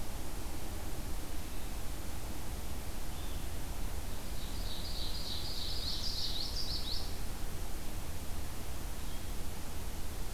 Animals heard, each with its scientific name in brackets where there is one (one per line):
Blue-headed Vireo (Vireo solitarius)
Ovenbird (Seiurus aurocapilla)
Common Yellowthroat (Geothlypis trichas)